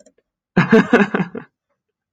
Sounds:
Laughter